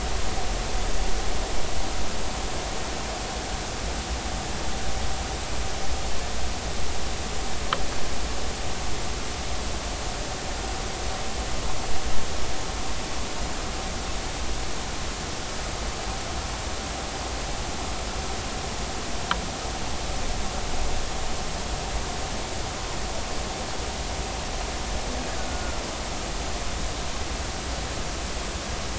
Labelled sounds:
25.4	25.8	killer whale, Bigg's (transient), 1.3 to 1.5 kHz

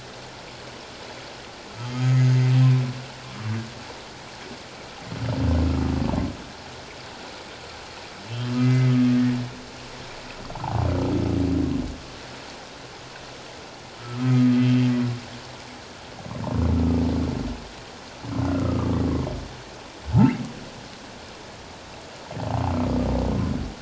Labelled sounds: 1.8	2.2	humpback whale, 1.2 to 3.2 kHz
8.6	9.4	humpback whale, 1.7 to 2.1 kHz
10.5	10.8	humpback whale, 0.78 to 1.2 kHz
14.0	14.6	humpback whale, 1.2 to 1.4 kHz
18.5	18.9	humpback whale, 1.1 to 1.5 kHz

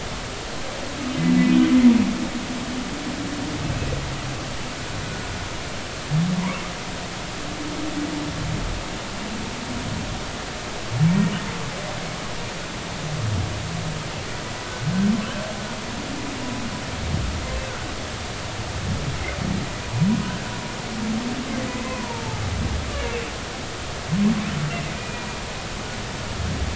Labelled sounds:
1.5	1.8	humpback whale, 2.9 to 3.1 kHz
5.0	5.3	humpback whale, 1.4 to 1.5 kHz
14.6	14.9	humpback whale, 1.4 to 1.6 kHz
21.8	22.4	humpback whale, 0.83 to 1.1 kHz
24.9	25.3	humpback whale, 2.4 to 2.5 kHz

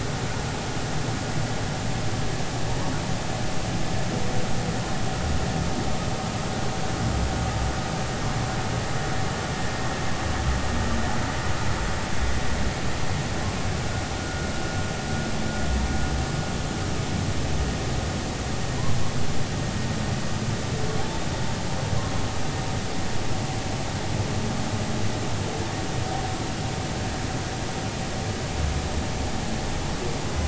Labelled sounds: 14.2	14.5	humpback whale, 1.3 to 1.5 kHz

